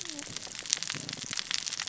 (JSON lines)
{"label": "biophony, cascading saw", "recorder": "SoundTrap 600 or HydroMoth"}